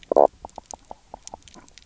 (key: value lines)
label: biophony, knock croak
recorder: SoundTrap 300